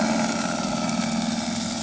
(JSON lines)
{"label": "anthrophony, boat engine", "recorder": "HydroMoth"}